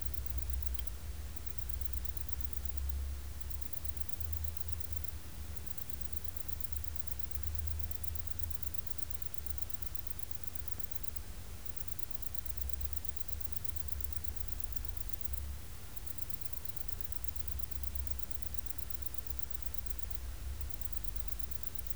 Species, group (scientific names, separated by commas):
Vichetia oblongicollis, Orthoptera